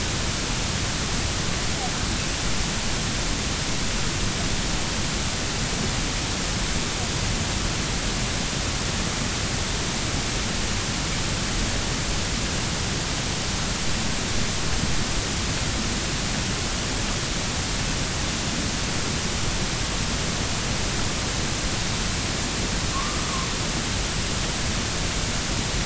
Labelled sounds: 22.9	23.2	humpback whale, 0.99 to 1.2 kHz

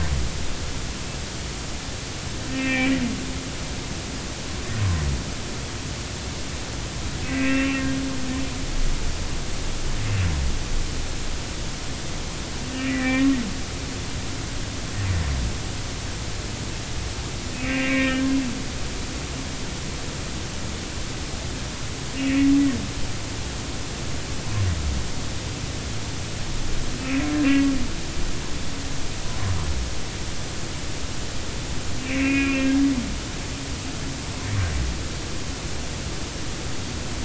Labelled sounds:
2.5	2.9	humpback whale, 1.8 to 2.7 kHz
7.3	7.8	humpback whale, 1.5 to 2.8 kHz
12.7	13.3	humpback whale, 1.8 to 2.9 kHz
17.5	18.3	humpback whale, 1.5 to 2.8 kHz
22.2	22.4	humpback whale, 2.5 to 2.8 kHz
27.0	27.7	humpback whale, 1.9 to 2.7 kHz
32.1	32.8	humpback whale, 2.1 to 2.9 kHz

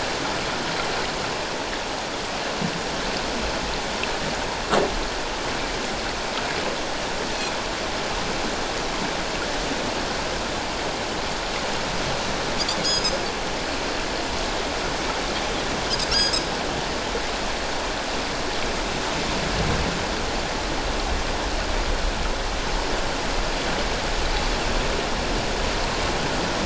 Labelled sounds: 12.8	13.2	Pacific white-sided dolphin, 4.8 to 5.4 kHz
16.1	16.4	Pacific white-sided dolphin, 4.7 to 5.0 kHz

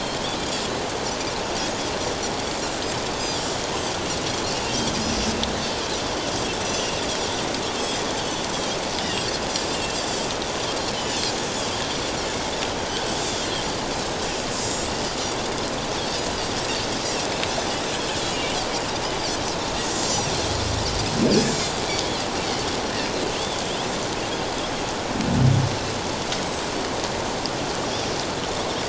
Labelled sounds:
2.5	2.8	Pacific white-sided dolphin, 7.2 to 7.5 kHz
3.2	3.5	Pacific white-sided dolphin, 3.0 to 3.7 kHz
7.8	8.5	Pacific white-sided dolphin, 2.8 to 5.3 kHz
9.7	10.0	Pacific white-sided dolphin, 2.6 to 2.9 kHz
13.2	13.5	Pacific white-sided dolphin, 4.8 to 7.6 kHz
14.6	14.9	Pacific white-sided dolphin, 3.7 to 7.8 kHz
18.3	18.6	Pacific white-sided dolphin, 2.7 to 3.1 kHz
19.8	20.3	Pacific white-sided dolphin, 4.7 to 7.6 kHz
21.4	21.7	Pacific white-sided dolphin, 5.5 to 7.7 kHz

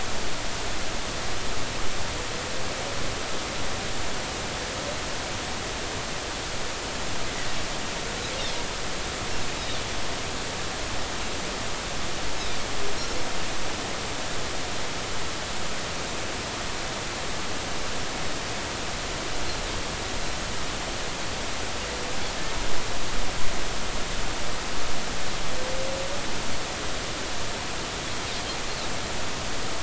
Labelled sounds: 9.6	9.8	Pacific white-sided dolphin, 3.3 to 3.9 kHz

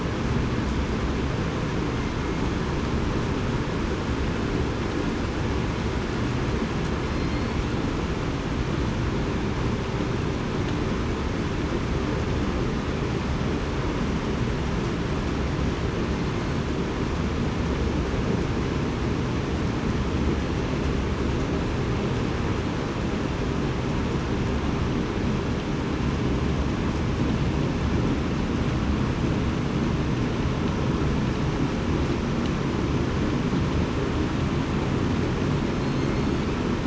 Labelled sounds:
7.1	7.5	killer whale, southern resident, 4.1 to 4.3 kHz

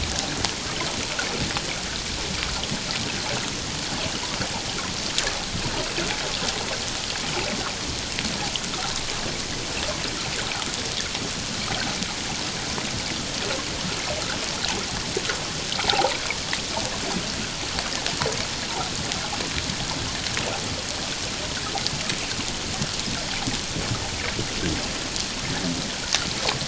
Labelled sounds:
15.9	16.2	water noise, 0.78 to 1.0 kHz

